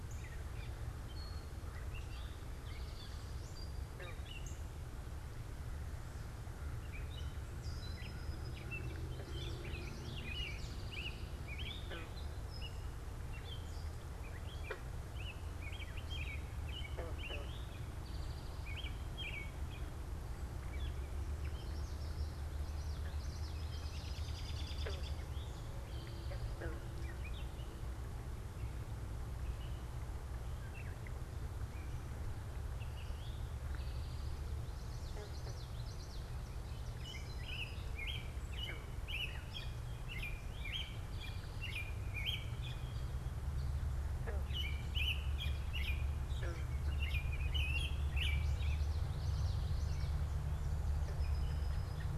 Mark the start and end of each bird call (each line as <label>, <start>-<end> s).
American Robin (Turdus migratorius), 0.0-32.0 s
American Crow (Corvus brachyrhynchos), 0.5-10.2 s
Eastern Towhee (Pipilo erythrophthalmus), 1.9-3.5 s
Common Yellowthroat (Geothlypis trichas), 9.1-10.8 s
Eastern Towhee (Pipilo erythrophthalmus), 9.9-11.6 s
Eastern Towhee (Pipilo erythrophthalmus), 17.3-18.7 s
Common Yellowthroat (Geothlypis trichas), 21.4-24.3 s
Eastern Towhee (Pipilo erythrophthalmus), 25.2-26.8 s
Eastern Towhee (Pipilo erythrophthalmus), 33.0-34.5 s
Common Yellowthroat (Geothlypis trichas), 34.5-36.3 s
American Robin (Turdus migratorius), 36.6-49.1 s
Eastern Towhee (Pipilo erythrophthalmus), 40.4-41.9 s
Common Yellowthroat (Geothlypis trichas), 48.4-50.3 s